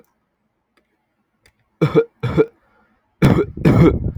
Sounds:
Cough